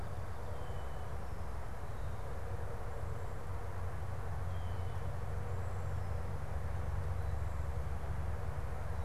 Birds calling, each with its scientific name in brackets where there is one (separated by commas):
unidentified bird, Cedar Waxwing (Bombycilla cedrorum)